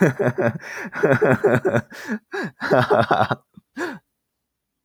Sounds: Laughter